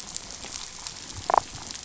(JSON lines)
{"label": "biophony, damselfish", "recorder": "SoundTrap 500"}